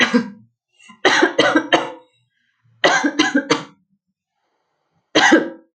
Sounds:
Cough